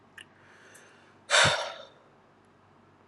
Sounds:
Sigh